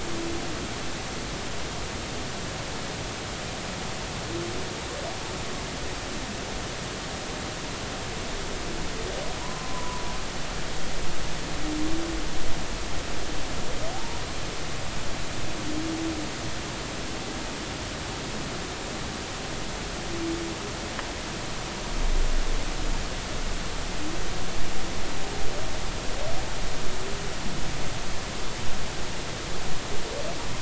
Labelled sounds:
9.4	10.0	humpback whale, 0.93 to 1.1 kHz
13.9	14.2	humpback whale, 0.80 to 0.96 kHz

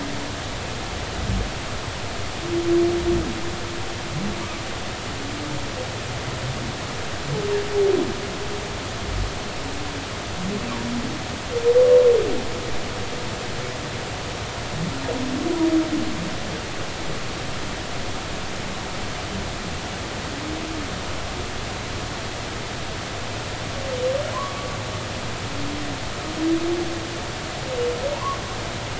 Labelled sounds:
24.3	24.7	humpback whale, 0.96 to 1.2 kHz
28.1	28.4	humpback whale, 0.90 to 1.2 kHz

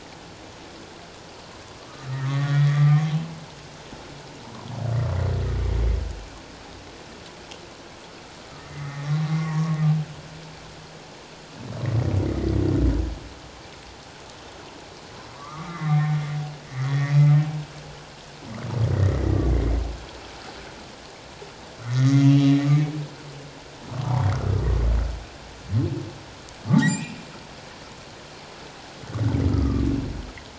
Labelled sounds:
1.8	3.0	humpback whale, 1.1 to 3.5 kHz
8.7	9.8	humpback whale, 0.91 to 2.1 kHz
12.2	12.6	humpback whale, 1.9 to 2.2 kHz
15.3	16.0	humpback whale, 0.97 to 2.2 kHz
16.7	17.2	humpback whale, 1.8 to 2.2 kHz
19.1	19.4	humpback whale, 1.9 to 2.1 kHz
21.8	22.3	humpback whale, 1.8 to 6.6 kHz
26.7	27.2	humpback whale, 0.81 to 7.8 kHz
29.5	29.8	humpback whale, 1.1 to 1.4 kHz

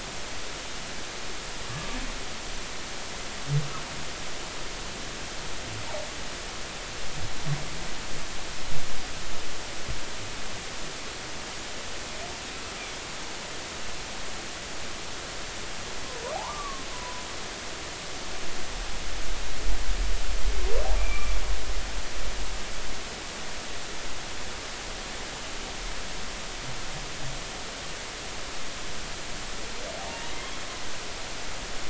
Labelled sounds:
1.6	2.0	humpback whale, 1.1 to 1.2 kHz
16.3	17.2	humpback whale, 0.80 to 1.2 kHz
21.0	21.4	humpback whale, 1.1 to 2.4 kHz
30.1	30.3	humpback whale, 0.86 to 0.99 kHz

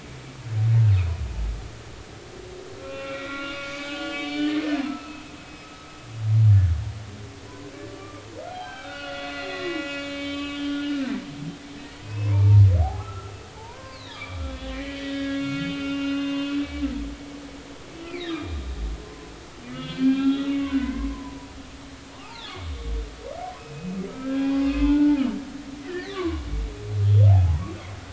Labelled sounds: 2.8	5.9	humpback whale, 1.0 to 5.6 kHz
6.5	6.7	humpback whale, 1.5 to 1.8 kHz
7.9	10.8	humpback whale, 0.80 to 6.8 kHz
12.0	16.5	humpback whale, 0.80 to 5.4 kHz
17.9	18.6	humpback whale, 2.0 to 4.4 kHz
19.7	21.6	humpback whale, 0.86 to 4.3 kHz
22.1	22.6	humpback whale, 0.80 to 4.4 kHz
23.6	25.4	humpback whale, 0.80 to 3.4 kHz
25.8	26.4	humpback whale, 0.96 to 2.4 kHz
27.3	27.7	humpback whale, 0.80 to 1.2 kHz

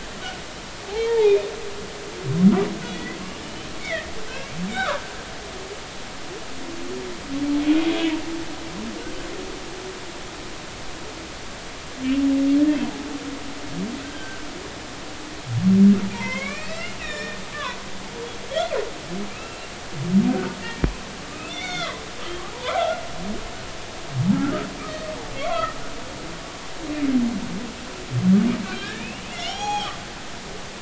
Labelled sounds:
1.1	1.3	humpback whale, 0.80 to 0.99 kHz
2.9	3.2	humpback whale, 1.9 to 2.1 kHz
3.8	4.1	humpback whale, 1.7 to 2.3 kHz
4.7	5.0	humpback whale, 0.90 to 3.9 kHz
14.0	14.4	humpback whale, 1.5 to 1.7 kHz
16.1	17.8	humpback whale, 0.86 to 5.8 kHz
19.3	20.6	humpback whale, 1.4 to 2.8 kHz
21.3	22.0	humpback whale, 0.96 to 4.5 kHz
22.5	23.0	humpback whale, 0.90 to 1.5 kHz
25.3	25.8	humpback whale, 1.2 to 2.4 kHz
28.6	30.0	humpback whale, 0.80 to 6.7 kHz

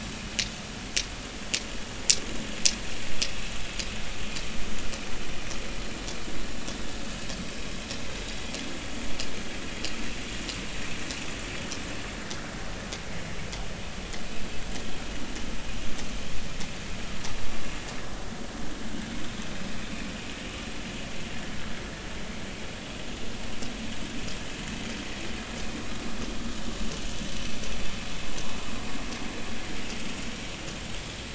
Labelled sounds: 20.4	20.7	vessel noise, 2.8 to 2.9 kHz

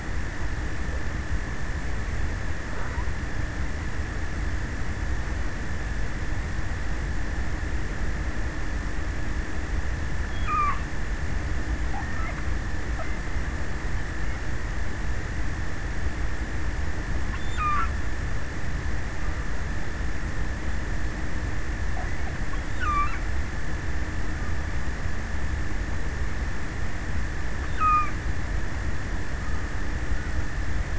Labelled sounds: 9.9	11.3	killer whale, offshore, 0.47 to 4.7 kHz
16.9	18.3	killer whale, offshore, 0.63 to 5.5 kHz
22.0	23.7	killer whale, offshore, 0.71 to 8.0 kHz
27.1	29.2	killer whale, offshore, 0 to 6.5 kHz

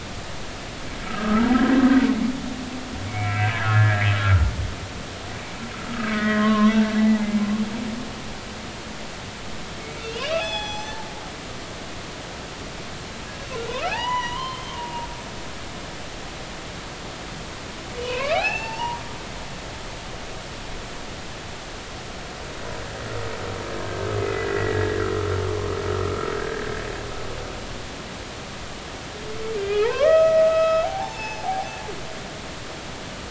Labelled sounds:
1.1	1.5	humpback whale, 1.2 to 1.5 kHz
3.1	4.5	humpback whale, 1.2 to 2.7 kHz
6.0	6.7	humpback whale, 0.99 to 3.3 kHz
10.3	11.0	humpback whale, 0.80 to 7.6 kHz
13.8	15.1	humpback whale, 0.80 to 4.0 kHz
18.0	19.0	humpback whale, 0.80 to 5.5 kHz
24.2	25.0	humpback whale, 1.6 to 2.1 kHz
26.4	26.7	humpback whale, 1.5 to 1.9 kHz
29.6	31.7	humpback whale, 0.80 to 5.4 kHz

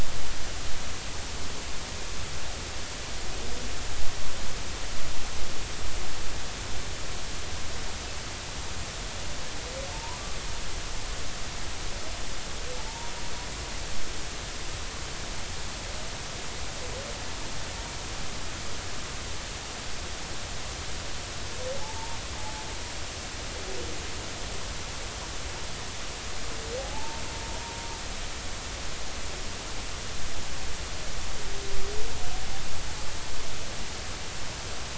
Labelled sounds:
9.9	10.2	humpback whale, 0.86 to 1.1 kHz
12.8	13.1	humpback whale, 0.83 to 0.99 kHz
21.8	22.2	humpback whale, 0.80 to 0.96 kHz
26.8	27.2	humpback whale, 0.80 to 0.99 kHz

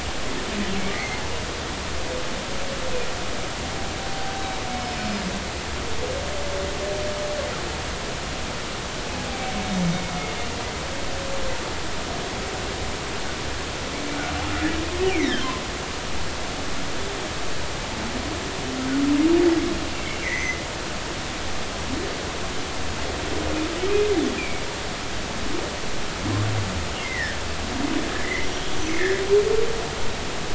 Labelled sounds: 0.9	1.2	humpback whale, 1.8 to 2.3 kHz
4.7	5.3	humpback whale, 4.9 to 5.2 kHz
15.1	15.5	humpback whale, 1.4 to 2.5 kHz
20.2	20.6	humpback whale, 1.8 to 6.3 kHz
24.4	24.6	humpback whale, 2.2 to 2.5 kHz
27.0	27.4	humpback whale, 1.5 to 2.2 kHz
28.2	29.2	humpback whale, 1.6 to 6.1 kHz

